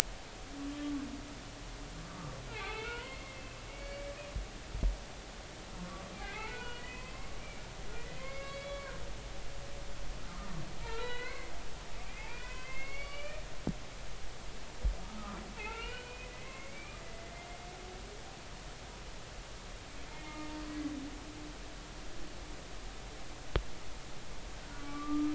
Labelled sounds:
0.7	0.9	humpback whale, 3.1 to 3.3 kHz
2.0	3.4	humpback whale, 0.80 to 3.2 kHz
3.7	4.1	humpback whale, 2.1 to 2.3 kHz
6.2	8.9	humpback whale, 0.80 to 4.5 kHz
10.3	13.4	humpback whale, 0.86 to 4.6 kHz
15.0	17.3	humpback whale, 0.83 to 3.0 kHz
20.1	20.5	humpback whale, 0.86 to 2.2 kHz
24.7	25.3	humpback whale, 1.1 to 2.4 kHz

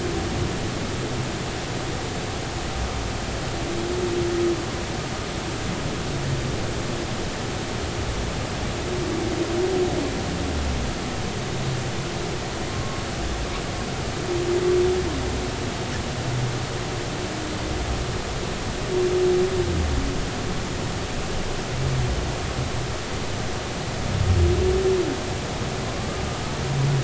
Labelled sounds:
12.7	13.0	humpback whale, 1.0 to 1.2 kHz

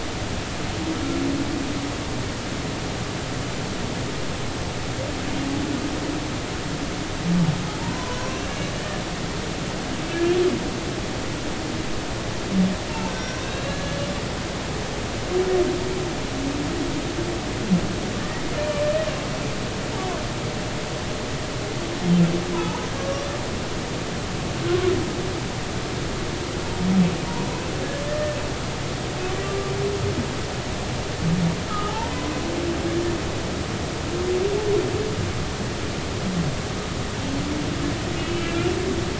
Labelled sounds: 7.8	9.0	humpback whale, 0.86 to 6.3 kHz
10.0	10.4	humpback whale, 1.6 to 2.5 kHz
12.9	14.0	humpback whale, 0.86 to 5.7 kHz
22.5	23.2	humpback whale, 0.83 to 1.2 kHz
29.4	29.7	humpback whale, 1.1 to 1.2 kHz
31.7	32.3	humpback whale, 0.80 to 1.4 kHz
38.2	38.7	humpback whale, 2.3 to 3.0 kHz

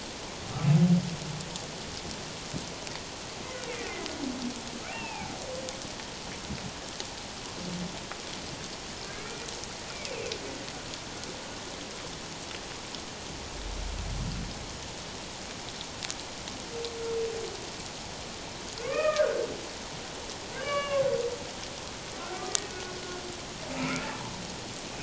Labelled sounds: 3.6	3.9	humpback whale, 1.8 to 2.4 kHz
4.9	5.3	humpback whale, 0.78 to 2.8 kHz
9.1	9.5	humpback whale, 2.0 to 2.4 kHz
18.8	19.4	humpback whale, 1.0 to 2.6 kHz
20.5	21.0	humpback whale, 1.0 to 2.9 kHz
23.7	24.0	humpback whale, 1.2 to 2.7 kHz

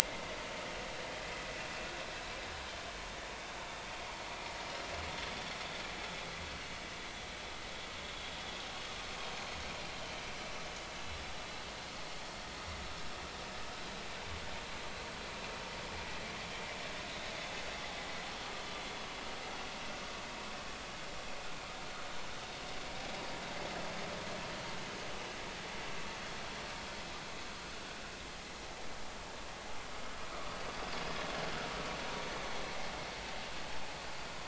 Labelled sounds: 1.0	1.3	vessel noise, 1.9 to 2.2 kHz

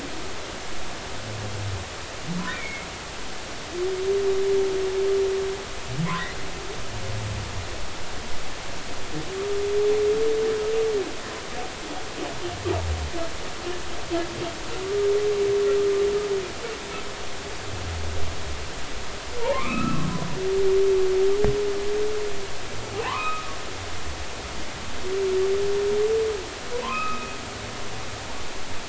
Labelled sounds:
2.5	2.9	humpback whale, 2.1 to 2.4 kHz
14.8	15.1	humpback whale, 1.1 to 1.2 kHz
19.4	20.0	humpback whale, 0.86 to 2.7 kHz
23.0	23.5	humpback whale, 0.80 to 4.0 kHz
26.8	27.4	humpback whale, 0.90 to 2.6 kHz

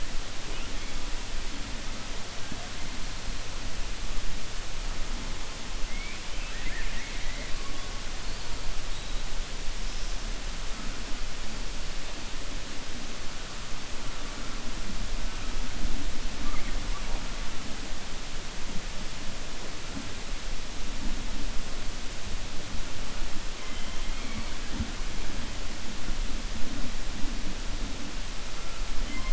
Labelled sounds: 6.3	7.5	killer whale, 1.6 to 3.1 kHz

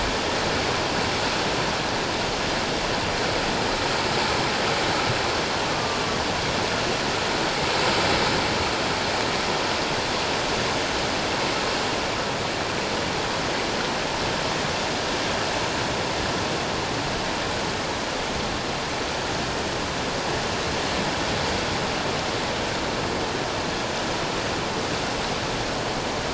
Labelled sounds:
5.7	6.0	killer whale, northern resident, A clan, AA subclan, A01 pod, call N04, 1.1 to 1.2 kHz

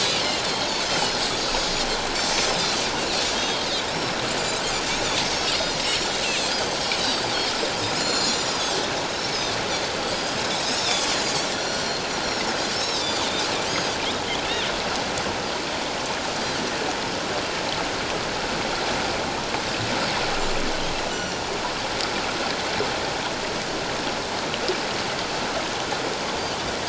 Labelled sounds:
0.9	2.5	Pacific white-sided dolphin, 2.9 to 7.0 kHz
3.3	3.7	Pacific white-sided dolphin, 3.1 to 3.3 kHz
5.3	6.5	Pacific white-sided dolphin, 5.1 to 6.0 kHz
7.9	8.8	Pacific white-sided dolphin, 4.1 to 7.2 kHz
10.1	12.0	Pacific white-sided dolphin, 3.3 to 7.3 kHz
12.8	14.0	Pacific white-sided dolphin, 3.4 to 8.0 kHz
21.1	21.4	Pacific white-sided dolphin, 2.8 to 7.4 kHz

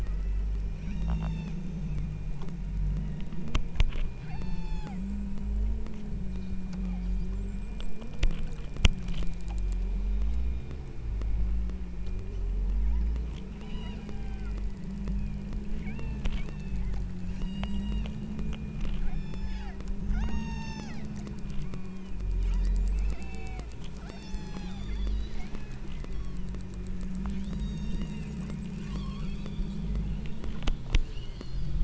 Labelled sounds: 0.0	1.7	killer whale, southern Alaska resident, 0.78 to 8.0 kHz
4.3	5.1	killer whale, southern Alaska resident, 0.59 to 8.0 kHz
6.8	7.3	killer whale, southern Alaska resident, 2.5 to 3.1 kHz
13.5	14.7	killer whale, southern Alaska resident, 0.59 to 8.0 kHz
15.1	16.9	killer whale, southern Alaska resident, 0.64 to 8.0 kHz
17.3	18.2	killer whale, southern Alaska resident, 0.73 to 8.0 kHz
19.0	21.0	killer whale, southern Alaska resident, 0.55 to 8.0 kHz
21.7	26.6	killer whale, southern Alaska resident, 0.48 to 7.4 kHz
27.2	28.5	killer whale, southern Alaska resident, 1.9 to 8.0 kHz
28.8	29.9	killer whale, southern Alaska resident, 0.75 to 6.7 kHz
31.1	31.8	killer whale, southern Alaska resident, 2.6 to 5.1 kHz

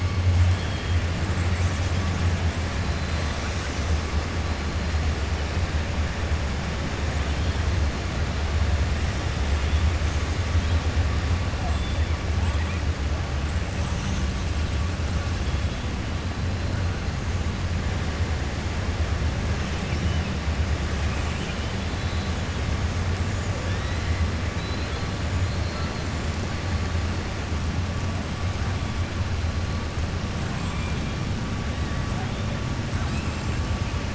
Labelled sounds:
0.5	0.9	killer whale, 3.1 to 4.4 kHz
23.6	24.2	killer whale, 2.1 to 4.1 kHz
24.5	25.1	killer whale, 2.5 to 4.3 kHz
30.6	31.1	killer whale, 2.3 to 3.6 kHz

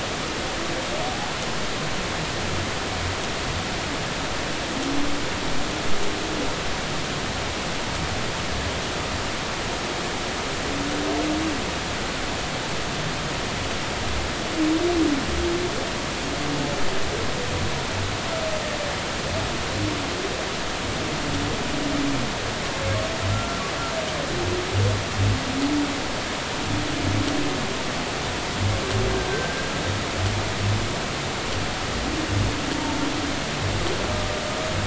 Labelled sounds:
23.3	23.6	humpback whale, 1.3 to 1.4 kHz
29.3	29.7	humpback whale, 1.5 to 1.6 kHz
32.7	33.0	humpback whale, 0.86 to 0.96 kHz

